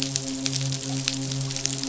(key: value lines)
label: biophony, midshipman
recorder: SoundTrap 500